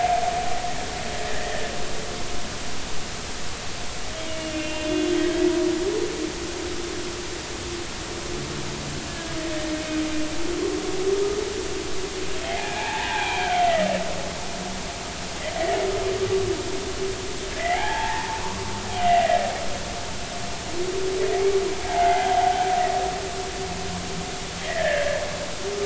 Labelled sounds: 4.4	4.9	humpback whale, 2.6 to 3.2 kHz
9.1	9.4	humpback whale, 1.6 to 1.8 kHz
12.4	13.6	humpback whale, 0.80 to 2.6 kHz
15.6	15.8	humpback whale, 1.7 to 2.1 kHz
17.6	18.4	humpback whale, 0.80 to 3.4 kHz
19.0	19.4	humpback whale, 1.8 to 2.0 kHz
21.9	22.6	humpback whale, 0.80 to 1.8 kHz
24.6	25.2	humpback whale, 1.6 to 2.1 kHz

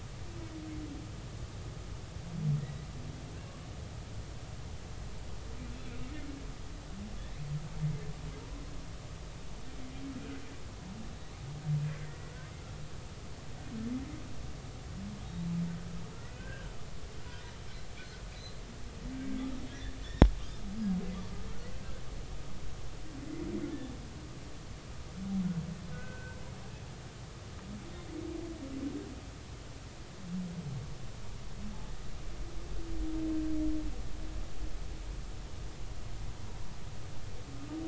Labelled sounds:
2.6	2.9	humpback whale, 1.8 to 2.0 kHz
5.7	6.0	humpback whale, 2.3 to 2.7 kHz
12.0	12.3	humpback whale, 1.8 to 2.0 kHz
16.1	16.7	humpback whale, 1.3 to 1.7 kHz
19.7	20.3	humpback whale, 1.6 to 5.6 kHz
21.1	21.4	humpback whale, 1.1 to 1.2 kHz
25.9	26.4	humpback whale, 1.4 to 1.6 kHz

